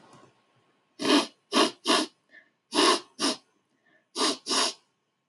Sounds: Sniff